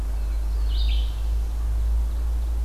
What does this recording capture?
Black-throated Blue Warbler, Red-eyed Vireo, Ovenbird